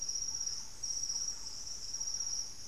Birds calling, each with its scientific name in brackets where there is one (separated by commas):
Thrush-like Wren (Campylorhynchus turdinus)